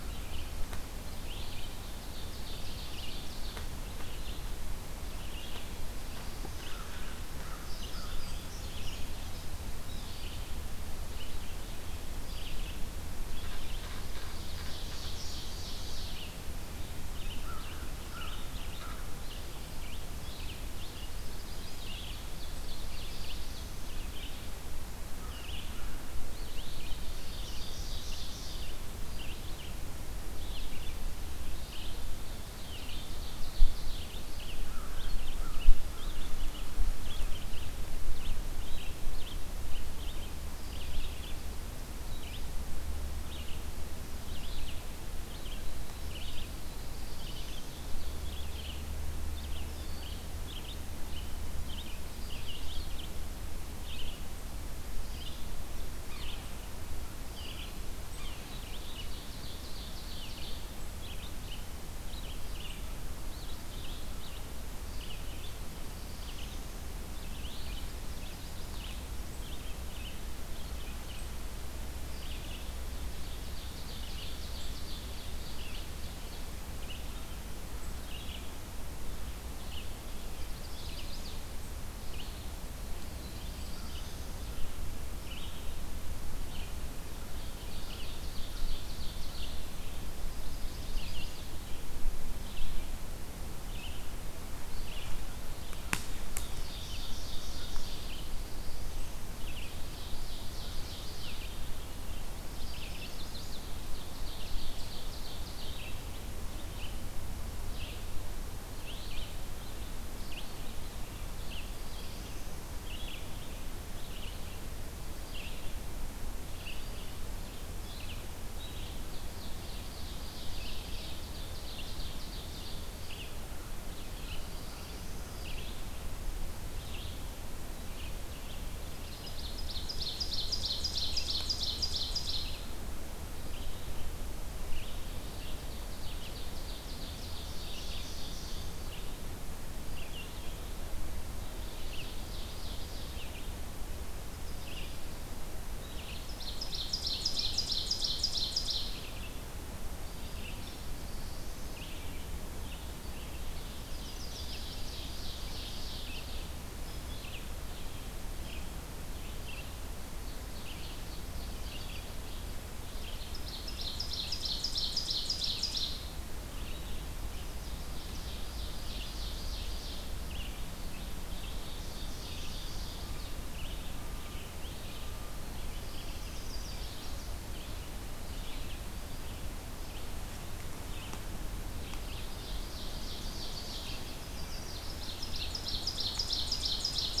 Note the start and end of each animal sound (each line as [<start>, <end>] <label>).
[1.15, 184.15] Red-eyed Vireo (Vireo olivaceus)
[1.70, 3.59] Ovenbird (Seiurus aurocapilla)
[6.51, 8.15] American Crow (Corvus brachyrhynchos)
[7.55, 9.14] Indigo Bunting (Passerina cyanea)
[13.26, 16.29] Ovenbird (Seiurus aurocapilla)
[17.31, 19.01] American Crow (Corvus brachyrhynchos)
[21.90, 23.59] Ovenbird (Seiurus aurocapilla)
[27.18, 28.68] Ovenbird (Seiurus aurocapilla)
[32.20, 34.10] Ovenbird (Seiurus aurocapilla)
[34.56, 36.45] American Crow (Corvus brachyrhynchos)
[58.65, 60.63] Ovenbird (Seiurus aurocapilla)
[65.67, 66.70] Black-throated Blue Warbler (Setophaga caerulescens)
[67.81, 68.94] Chestnut-sided Warbler (Setophaga pensylvanica)
[72.80, 76.39] Ovenbird (Seiurus aurocapilla)
[80.33, 81.35] Chestnut-sided Warbler (Setophaga pensylvanica)
[82.82, 84.38] Black-throated Blue Warbler (Setophaga caerulescens)
[87.60, 89.57] Ovenbird (Seiurus aurocapilla)
[90.20, 91.46] Chestnut-sided Warbler (Setophaga pensylvanica)
[96.42, 98.13] Ovenbird (Seiurus aurocapilla)
[97.86, 99.43] Black-throated Blue Warbler (Setophaga caerulescens)
[99.43, 101.48] Ovenbird (Seiurus aurocapilla)
[102.42, 103.65] Chestnut-sided Warbler (Setophaga pensylvanica)
[103.80, 105.87] Ovenbird (Seiurus aurocapilla)
[111.20, 112.61] Black-throated Blue Warbler (Setophaga caerulescens)
[118.85, 122.87] Ovenbird (Seiurus aurocapilla)
[123.79, 125.35] Black-throated Blue Warbler (Setophaga caerulescens)
[129.15, 132.63] Ovenbird (Seiurus aurocapilla)
[135.36, 138.96] Ovenbird (Seiurus aurocapilla)
[141.39, 143.24] Ovenbird (Seiurus aurocapilla)
[146.28, 148.84] Ovenbird (Seiurus aurocapilla)
[150.02, 151.79] Black-throated Blue Warbler (Setophaga caerulescens)
[153.80, 155.03] Chestnut-sided Warbler (Setophaga pensylvanica)
[154.02, 156.51] Ovenbird (Seiurus aurocapilla)
[159.81, 162.04] Ovenbird (Seiurus aurocapilla)
[163.11, 166.05] Ovenbird (Seiurus aurocapilla)
[167.82, 170.13] Ovenbird (Seiurus aurocapilla)
[171.28, 173.33] Ovenbird (Seiurus aurocapilla)
[176.04, 177.37] Chestnut-sided Warbler (Setophaga pensylvanica)
[181.71, 183.96] Ovenbird (Seiurus aurocapilla)
[183.85, 185.27] Chestnut-sided Warbler (Setophaga pensylvanica)
[184.93, 187.20] Ovenbird (Seiurus aurocapilla)